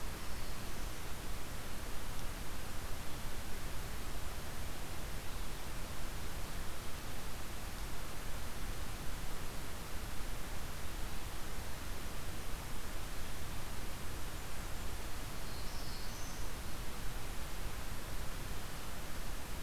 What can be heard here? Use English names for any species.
Black-throated Blue Warbler, Black-throated Green Warbler